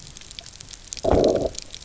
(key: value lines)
label: biophony, low growl
recorder: SoundTrap 300